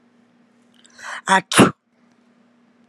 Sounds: Sneeze